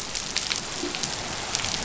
{"label": "biophony", "recorder": "SoundTrap 500"}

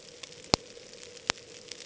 {"label": "ambient", "recorder": "HydroMoth"}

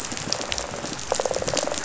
{"label": "biophony, rattle response", "recorder": "SoundTrap 500"}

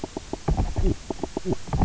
{"label": "biophony, knock croak", "recorder": "SoundTrap 300"}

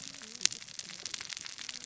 {"label": "biophony, cascading saw", "recorder": "SoundTrap 600 or HydroMoth"}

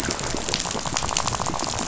{"label": "biophony, rattle", "recorder": "SoundTrap 500"}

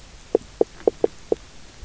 {"label": "biophony, knock", "recorder": "SoundTrap 300"}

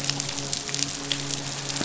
{"label": "biophony, midshipman", "recorder": "SoundTrap 500"}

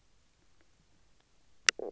{"label": "biophony, knock croak", "recorder": "SoundTrap 300"}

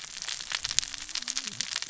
{"label": "biophony, cascading saw", "recorder": "SoundTrap 600 or HydroMoth"}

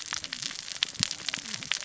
{"label": "biophony, cascading saw", "recorder": "SoundTrap 600 or HydroMoth"}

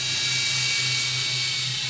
{"label": "anthrophony, boat engine", "recorder": "SoundTrap 500"}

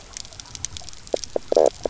{"label": "biophony, knock croak", "recorder": "SoundTrap 300"}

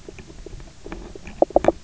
{"label": "biophony, knock croak", "recorder": "SoundTrap 300"}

